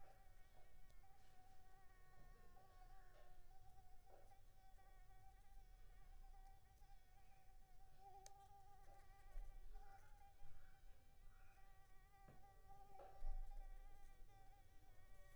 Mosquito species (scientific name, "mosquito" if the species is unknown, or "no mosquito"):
Anopheles arabiensis